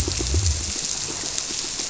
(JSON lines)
{"label": "biophony", "recorder": "SoundTrap 300"}